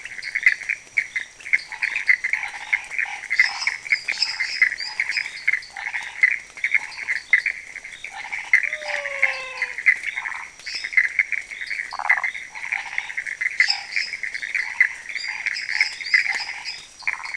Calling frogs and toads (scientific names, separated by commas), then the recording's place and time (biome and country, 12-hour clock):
Dendropsophus nanus, Boana raniceps, Dendropsophus minutus, Physalaemus albonotatus, Phyllomedusa sauvagii
Cerrado, Brazil, 1:45am